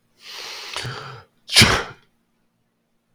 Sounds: Sneeze